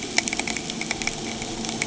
{"label": "anthrophony, boat engine", "recorder": "HydroMoth"}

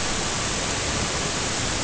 {"label": "ambient", "recorder": "HydroMoth"}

